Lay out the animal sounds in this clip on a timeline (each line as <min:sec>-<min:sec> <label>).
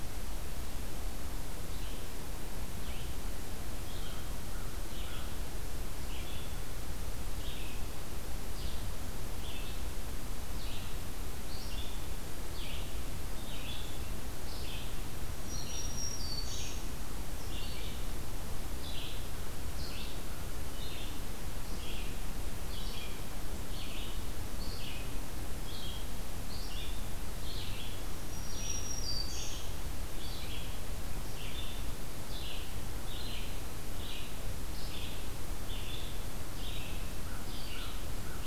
0:01.4-0:38.5 Red-eyed Vireo (Vireo olivaceus)
0:03.8-0:05.6 American Crow (Corvus brachyrhynchos)
0:15.4-0:16.7 Black-throated Green Warbler (Setophaga virens)
0:28.2-0:29.7 Black-throated Green Warbler (Setophaga virens)
0:36.9-0:38.5 American Crow (Corvus brachyrhynchos)